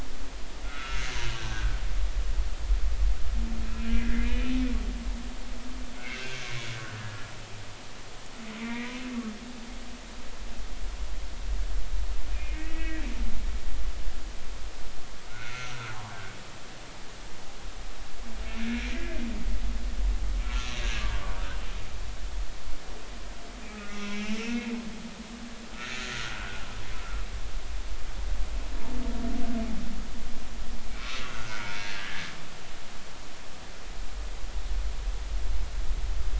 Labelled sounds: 0.6	1.8	humpback whale, 1.2 to 1.7 kHz
3.8	4.3	humpback whale, 1.5 to 2.1 kHz
6.0	7.3	humpback whale, 1.4 to 2.8 kHz
8.6	8.9	humpback whale, 1.8 to 2.5 kHz
12.3	13.0	humpback whale, 1.8 to 2.6 kHz
15.3	16.2	humpback whale, 0.80 to 1.6 kHz
18.7	19.0	humpback whale, 2.2 to 2.5 kHz
20.4	21.0	humpback whale, 1.3 to 4.0 kHz
23.7	24.7	humpback whale, 1.2 to 2.9 kHz
25.8	26.6	humpback whale, 1.3 to 1.9 kHz
30.9	32.3	humpback whale, 1.2 to 2.8 kHz

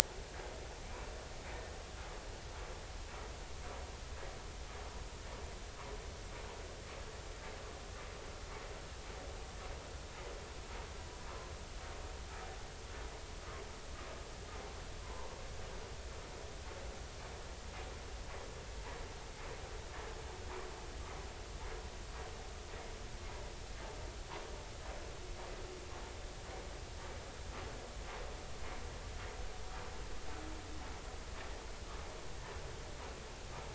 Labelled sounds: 15.0	15.3	vessel noise, 0.86 to 1.1 kHz

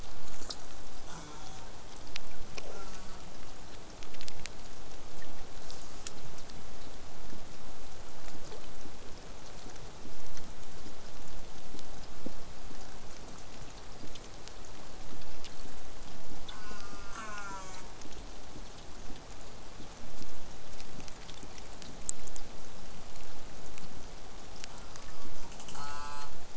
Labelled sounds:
1.1	1.7	killer whale, southern resident, J pod, call S04, 0.12 to 8.0 kHz
2.6	3.2	killer whale, southern resident, J pod, call S04, 0.19 to 8.0 kHz
5.0	10.0	vessel noise, 0 to 8.0 kHz
16.5	17.9	killer whale, southern resident, J pod, call S04, 0.35 to 8.0 kHz
24.7	26.3	killer whale, southern resident, J pod, call S04, 0.43 to 8.0 kHz

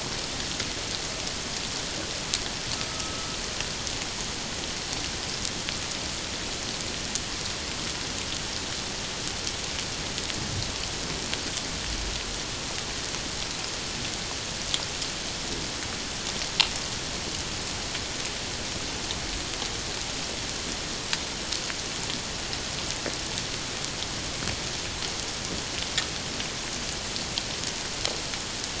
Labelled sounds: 2.9	3.4	killer whale, Bigg's (transient), 1.2 to 1.4 kHz

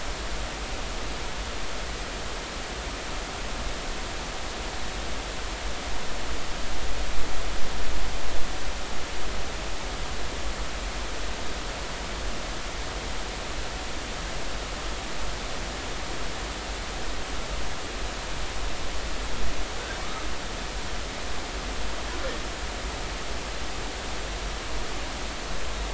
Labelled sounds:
20.0	20.3	humpback whale, 1.1 to 1.3 kHz

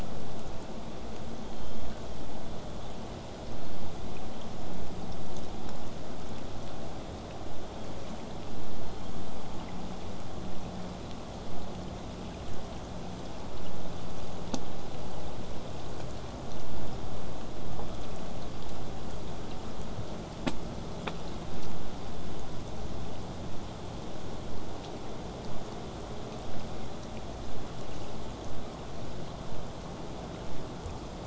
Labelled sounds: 1.5	2.0	killer whale, southern resident, 3.0 to 6.9 kHz
8.8	9.3	killer whale, southern resident, 2.0 to 7.3 kHz

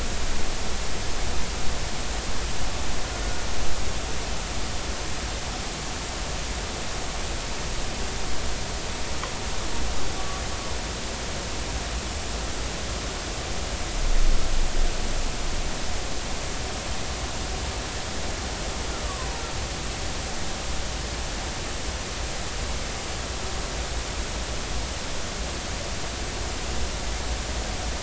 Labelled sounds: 19.0	19.4	killer whale, Bigg's (transient), 0.80 to 1.2 kHz

